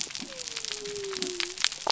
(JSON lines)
{"label": "biophony", "recorder": "SoundTrap 300"}